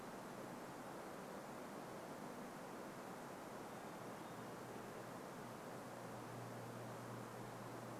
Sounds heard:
forest ambience